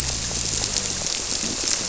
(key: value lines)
label: biophony
recorder: SoundTrap 300